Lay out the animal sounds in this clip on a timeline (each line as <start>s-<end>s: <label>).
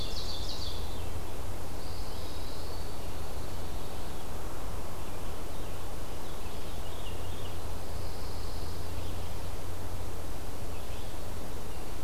0.0s-0.9s: Ovenbird (Seiurus aurocapilla)
0.0s-1.1s: Veery (Catharus fuscescens)
1.6s-4.2s: Pine Warbler (Setophaga pinus)
1.9s-3.1s: Eastern Wood-Pewee (Contopus virens)
6.2s-7.6s: Veery (Catharus fuscescens)
7.8s-8.9s: Pine Warbler (Setophaga pinus)